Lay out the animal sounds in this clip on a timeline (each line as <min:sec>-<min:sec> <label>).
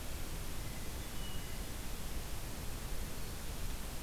0:00.4-0:01.6 Hermit Thrush (Catharus guttatus)